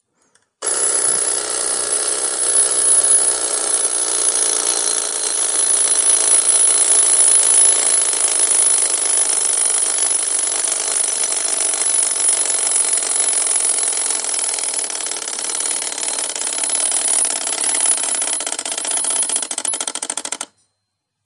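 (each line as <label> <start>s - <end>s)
A demolition hammer (jackhammer) works steadily on the street, gradually decreasing in volume at the end. 0.0s - 21.2s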